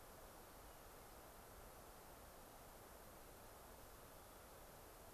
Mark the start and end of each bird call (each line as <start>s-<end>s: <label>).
0.6s-0.9s: Hermit Thrush (Catharus guttatus)
4.1s-4.8s: Hermit Thrush (Catharus guttatus)